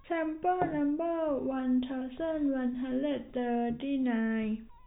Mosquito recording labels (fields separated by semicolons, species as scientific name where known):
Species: no mosquito; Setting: cup